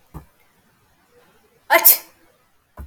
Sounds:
Sneeze